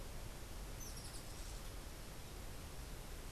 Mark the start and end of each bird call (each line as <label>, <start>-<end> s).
Rufous-tailed Hummingbird (Amazilia tzacatl), 0.7-1.7 s